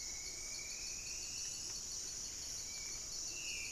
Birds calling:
Horned Screamer (Anhima cornuta), Buff-breasted Wren (Cantorchilus leucotis), Striped Woodcreeper (Xiphorhynchus obsoletus), Black-spotted Bare-eye (Phlegopsis nigromaculata), Spot-winged Antshrike (Pygiptila stellaris)

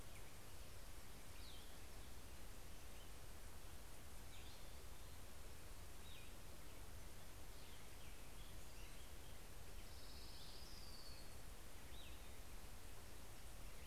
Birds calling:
Orange-crowned Warbler (Leiothlypis celata), Cassin's Vireo (Vireo cassinii)

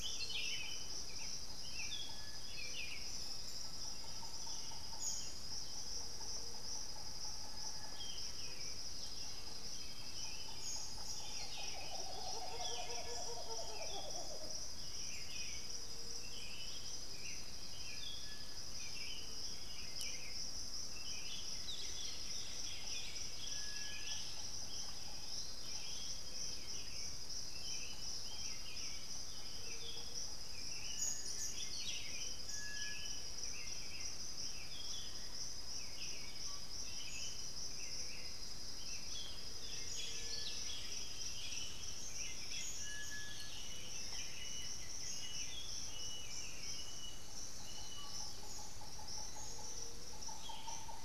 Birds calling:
Buff-throated Saltator (Saltator maximus), Black-throated Antbird (Myrmophylax atrothorax), Bluish-fronted Jacamar (Galbula cyanescens), White-winged Becard (Pachyramphus polychopterus), unidentified bird, Chestnut-winged Foliage-gleaner (Dendroma erythroptera), Black-billed Thrush (Turdus ignobilis)

